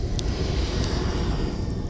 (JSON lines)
{"label": "anthrophony, boat engine", "recorder": "SoundTrap 300"}